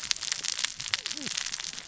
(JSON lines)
{"label": "biophony, cascading saw", "recorder": "SoundTrap 600 or HydroMoth"}